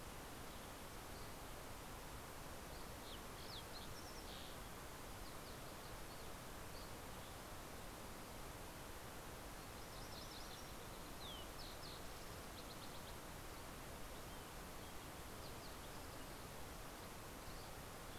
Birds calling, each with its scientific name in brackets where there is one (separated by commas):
Dusky Flycatcher (Empidonax oberholseri), Fox Sparrow (Passerella iliaca), MacGillivray's Warbler (Geothlypis tolmiei), Mountain Quail (Oreortyx pictus)